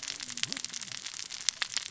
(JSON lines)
{"label": "biophony, cascading saw", "recorder": "SoundTrap 600 or HydroMoth"}